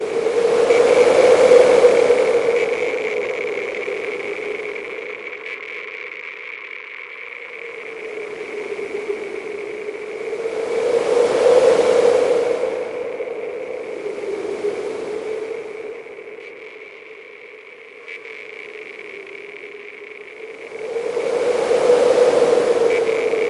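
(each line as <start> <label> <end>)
0.0 High-pitched rattling and electric noises. 23.5
0.0 Wind blowing in cycles. 23.5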